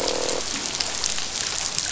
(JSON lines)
{"label": "biophony, croak", "recorder": "SoundTrap 500"}